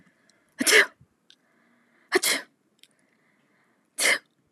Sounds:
Sneeze